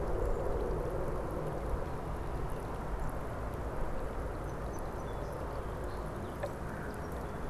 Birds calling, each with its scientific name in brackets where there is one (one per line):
Song Sparrow (Melospiza melodia)